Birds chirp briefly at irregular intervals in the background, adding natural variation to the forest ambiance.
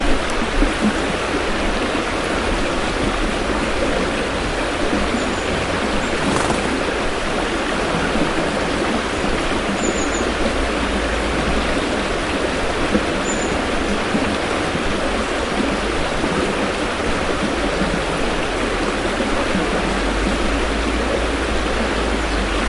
6.7 18.2

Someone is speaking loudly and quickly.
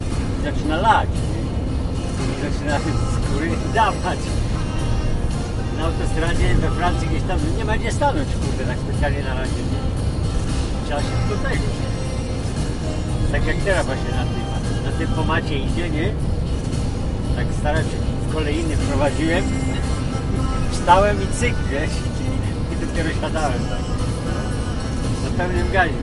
0.3 1.1, 2.2 4.3, 5.8 9.5, 10.8 11.7, 13.3 16.2, 17.4 19.5, 20.8 21.9, 22.8 23.6, 25.2 26.0

